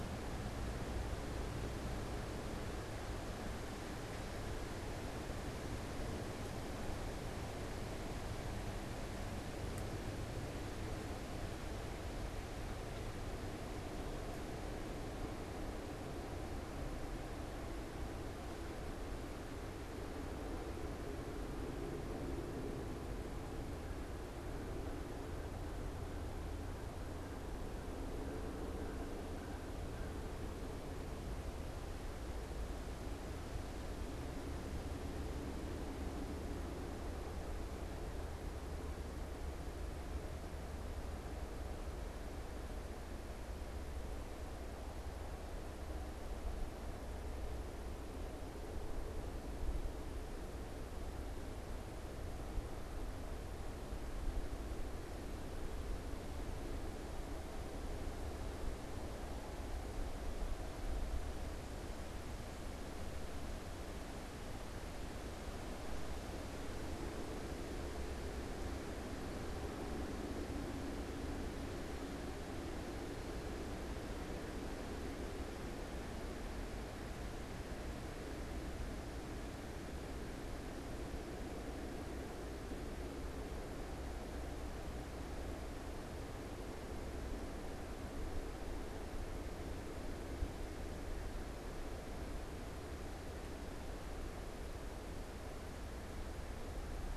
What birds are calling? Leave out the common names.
Corvus brachyrhynchos